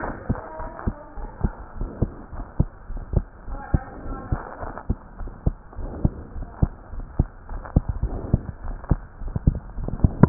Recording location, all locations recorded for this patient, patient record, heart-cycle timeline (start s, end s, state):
aortic valve (AV)
aortic valve (AV)+pulmonary valve (PV)+tricuspid valve (TV)+mitral valve (MV)
#Age: Child
#Sex: Male
#Height: 98.0 cm
#Weight: 15.9 kg
#Pregnancy status: False
#Murmur: Present
#Murmur locations: tricuspid valve (TV)
#Most audible location: tricuspid valve (TV)
#Systolic murmur timing: Holosystolic
#Systolic murmur shape: Plateau
#Systolic murmur grading: I/VI
#Systolic murmur pitch: Low
#Systolic murmur quality: Blowing
#Diastolic murmur timing: nan
#Diastolic murmur shape: nan
#Diastolic murmur grading: nan
#Diastolic murmur pitch: nan
#Diastolic murmur quality: nan
#Outcome: Abnormal
#Campaign: 2015 screening campaign
0.00	1.15	unannotated
1.15	1.30	S1
1.30	1.40	systole
1.40	1.54	S2
1.54	1.78	diastole
1.78	1.90	S1
1.90	1.98	systole
1.98	2.10	S2
2.10	2.32	diastole
2.32	2.46	S1
2.46	2.56	systole
2.56	2.70	S2
2.70	2.90	diastole
2.90	3.04	S1
3.04	3.12	systole
3.12	3.26	S2
3.26	3.47	diastole
3.47	3.60	S1
3.60	3.70	systole
3.70	3.84	S2
3.84	4.05	diastole
4.05	4.20	S1
4.20	4.28	systole
4.28	4.40	S2
4.40	4.60	diastole
4.60	4.74	S1
4.74	4.86	systole
4.86	4.96	S2
4.96	5.18	diastole
5.18	5.32	S1
5.32	5.42	systole
5.42	5.56	S2
5.56	5.77	diastole
5.77	5.94	S1
5.94	6.02	systole
6.02	6.14	S2
6.14	6.34	diastole
6.34	6.48	S1
6.48	6.58	systole
6.58	6.70	S2
6.70	6.92	diastole
6.92	7.08	S1
7.08	7.16	systole
7.16	7.30	S2
7.30	7.48	diastole
7.48	7.64	S1
7.64	7.72	systole
7.72	7.84	S2
7.84	8.09	diastole
8.09	8.22	S1
8.22	8.32	systole
8.32	8.41	S2
8.41	8.61	diastole
8.61	8.80	S1
8.80	8.88	systole
8.88	9.02	S2
9.02	9.20	diastole
9.20	9.34	S1
9.34	9.45	systole
9.45	9.54	S2
9.54	10.29	unannotated